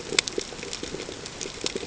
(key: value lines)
label: ambient
recorder: HydroMoth